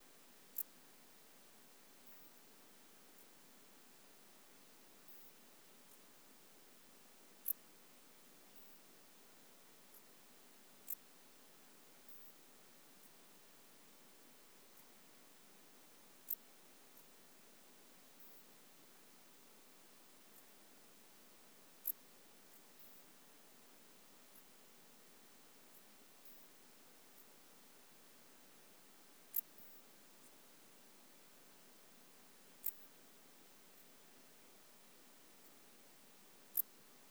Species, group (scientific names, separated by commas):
Pholidoptera griseoaptera, Orthoptera